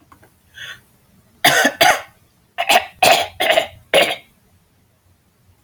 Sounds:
Throat clearing